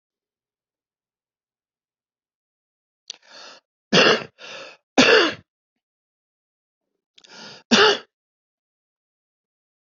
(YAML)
expert_labels:
- quality: poor
  cough_type: dry
  dyspnea: false
  wheezing: false
  stridor: false
  choking: false
  congestion: false
  nothing: true
  diagnosis: COVID-19
  severity: mild
age: 61
gender: female
respiratory_condition: false
fever_muscle_pain: true
status: symptomatic